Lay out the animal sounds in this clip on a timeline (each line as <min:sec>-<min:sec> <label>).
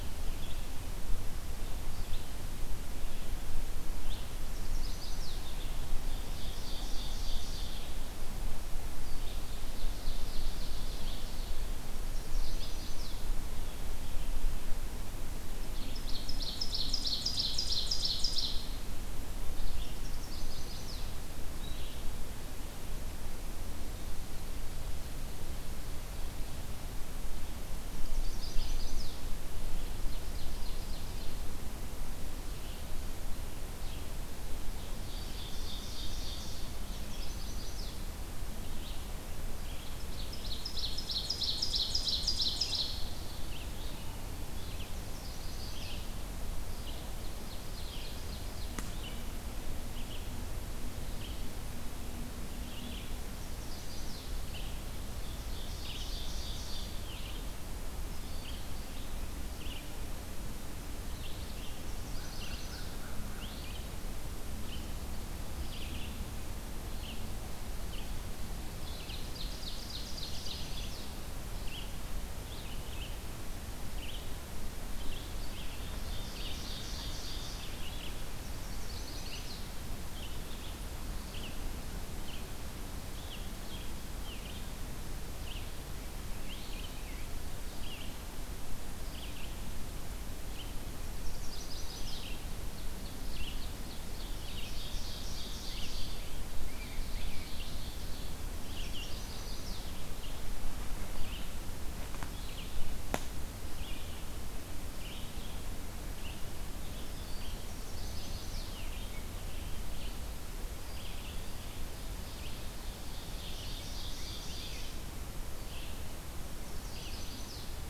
0:00.0-0:22.1 Red-eyed Vireo (Vireo olivaceus)
0:04.4-0:05.4 Chestnut-sided Warbler (Setophaga pensylvanica)
0:05.8-0:07.8 Ovenbird (Seiurus aurocapilla)
0:09.3-0:11.6 Ovenbird (Seiurus aurocapilla)
0:12.1-0:13.2 Chestnut-sided Warbler (Setophaga pensylvanica)
0:15.6-0:18.8 Ovenbird (Seiurus aurocapilla)
0:19.9-0:21.0 Chestnut-sided Warbler (Setophaga pensylvanica)
0:27.9-0:29.1 Chestnut-sided Warbler (Setophaga pensylvanica)
0:29.6-0:31.4 Ovenbird (Seiurus aurocapilla)
0:32.2-0:35.2 Red-eyed Vireo (Vireo olivaceus)
0:34.9-0:36.7 Ovenbird (Seiurus aurocapilla)
0:36.8-0:38.0 Chestnut-sided Warbler (Setophaga pensylvanica)
0:38.7-0:50.4 Red-eyed Vireo (Vireo olivaceus)
0:39.9-0:43.1 Ovenbird (Seiurus aurocapilla)
0:45.0-0:46.0 Chestnut-sided Warbler (Setophaga pensylvanica)
0:47.1-0:48.7 Ovenbird (Seiurus aurocapilla)
0:51.0-1:49.8 Red-eyed Vireo (Vireo olivaceus)
0:53.3-0:54.3 Chestnut-sided Warbler (Setophaga pensylvanica)
0:55.0-0:57.0 Ovenbird (Seiurus aurocapilla)
1:01.8-1:02.9 Chestnut-sided Warbler (Setophaga pensylvanica)
1:02.0-1:03.6 American Crow (Corvus brachyrhynchos)
1:08.7-1:11.1 Ovenbird (Seiurus aurocapilla)
1:10.0-1:11.1 Chestnut-sided Warbler (Setophaga pensylvanica)
1:15.9-1:17.7 Ovenbird (Seiurus aurocapilla)
1:18.4-1:19.7 Chestnut-sided Warbler (Setophaga pensylvanica)
1:31.1-1:32.3 Chestnut-sided Warbler (Setophaga pensylvanica)
1:32.6-1:36.1 Ovenbird (Seiurus aurocapilla)
1:36.6-1:37.5 Blue Jay (Cyanocitta cristata)
1:36.6-1:38.4 Ovenbird (Seiurus aurocapilla)
1:38.6-1:39.8 Chestnut-sided Warbler (Setophaga pensylvanica)
1:47.6-1:48.9 Chestnut-sided Warbler (Setophaga pensylvanica)
1:50.8-1:57.9 Red-eyed Vireo (Vireo olivaceus)
1:53.0-1:54.9 Ovenbird (Seiurus aurocapilla)
1:56.6-1:57.7 Chestnut-sided Warbler (Setophaga pensylvanica)